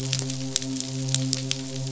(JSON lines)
{"label": "biophony, midshipman", "recorder": "SoundTrap 500"}